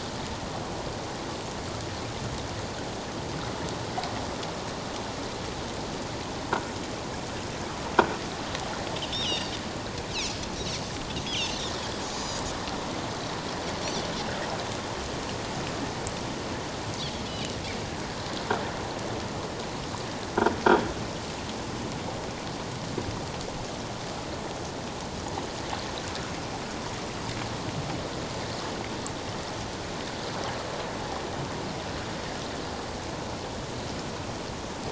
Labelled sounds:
9.2	9.5	Pacific white-sided dolphin, 2.7 to 4.9 kHz
11.2	11.6	Pacific white-sided dolphin, 2.6 to 6.7 kHz
17.3	17.6	Pacific white-sided dolphin, 2.8 to 4.1 kHz

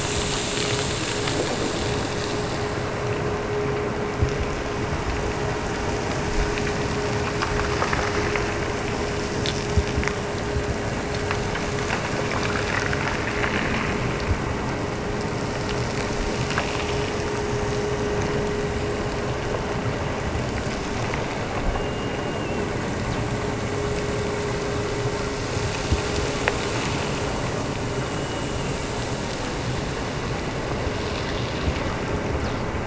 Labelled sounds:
21.7	23.0	killer whale, Bigg's (transient), Gulf of Alaska transient, 1.8 to 2.9 kHz
27.9	29.1	killer whale, Bigg's (transient), Gulf of Alaska transient, 2.0 to 2.9 kHz

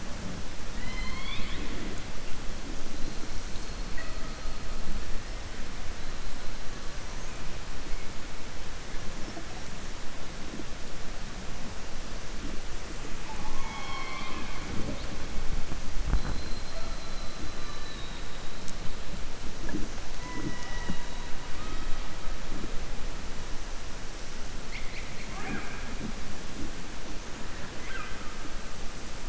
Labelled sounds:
27.7	28.3	killer whale, southern resident, 1.2 to 3.3 kHz

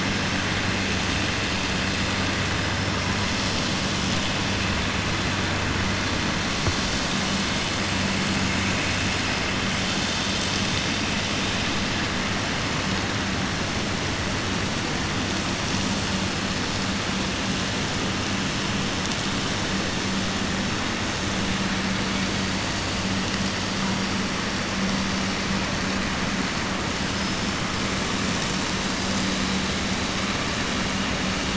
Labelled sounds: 27.1	27.4	killer whale, southern resident, 5.0 to 5.3 kHz

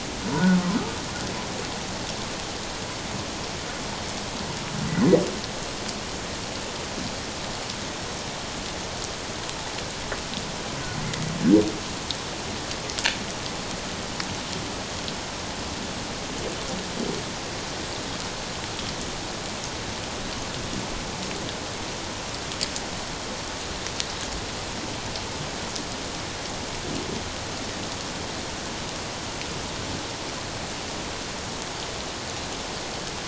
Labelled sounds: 4.9	5.2	humpback whale, 1.8 to 2.1 kHz

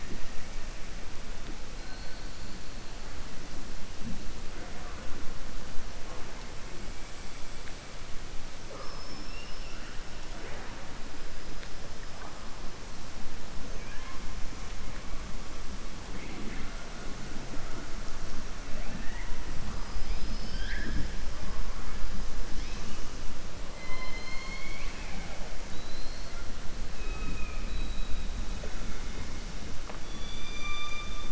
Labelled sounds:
9.2	10.0	killer whale, southern resident, 1.3 to 3.0 kHz
23.7	25.4	killer whale, southern resident, 0.56 to 5.2 kHz
30.0	31.2	killer whale, southern resident, 1.2 to 6.0 kHz

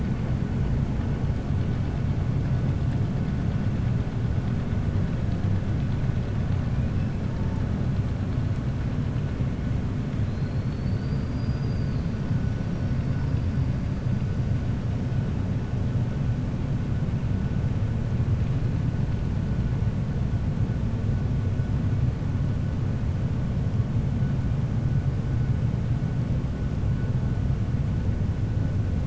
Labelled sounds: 10.2	12.1	killer whale, 4.0 to 4.9 kHz

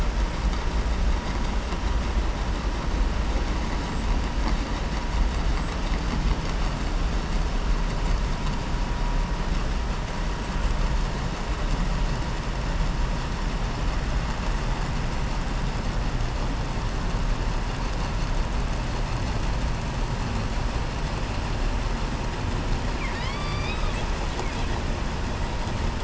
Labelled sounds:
22.9	24.1	killer whale, southern resident, 1.1 to 5.9 kHz

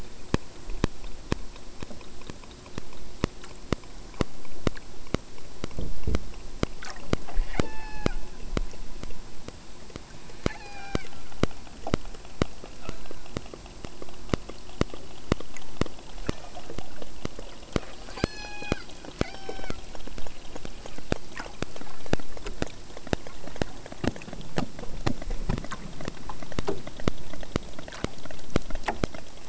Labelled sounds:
7.5	8.2	killer whale, southern Alaska resident, 0.64 to 8.0 kHz
10.4	11.1	killer whale, southern Alaska resident, 0.51 to 8.0 kHz
12.8	13.5	killer whale, southern Alaska resident, 0.44 to 4.1 kHz
18.1	18.8	killer whale, southern Alaska resident, 0.51 to 8.0 kHz
19.2	19.8	killer whale, southern Alaska resident, 0.49 to 5.6 kHz

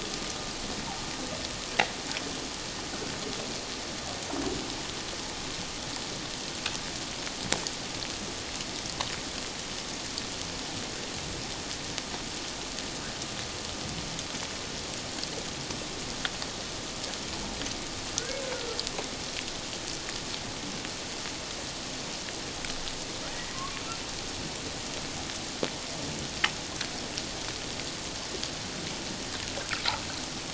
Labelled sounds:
18.2	18.4	humpback whale, 1.3 to 1.7 kHz
23.3	23.8	humpback whale, 1.0 to 2.0 kHz
29.6	29.8	humpback whale, 1.2 to 1.7 kHz

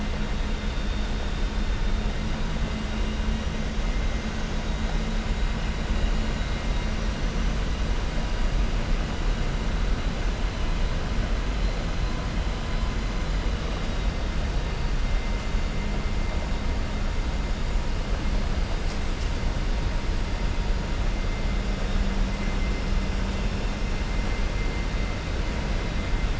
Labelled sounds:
13.5	14.2	vessel noise, 2.8 to 4.8 kHz

